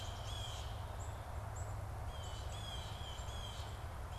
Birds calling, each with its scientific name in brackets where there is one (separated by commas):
Blue Jay (Cyanocitta cristata), Black-capped Chickadee (Poecile atricapillus)